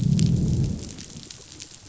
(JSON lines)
{"label": "biophony, growl", "recorder": "SoundTrap 500"}